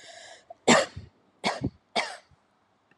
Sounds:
Cough